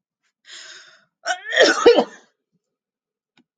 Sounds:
Sneeze